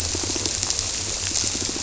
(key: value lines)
label: biophony
recorder: SoundTrap 300